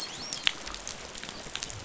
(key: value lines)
label: biophony, dolphin
recorder: SoundTrap 500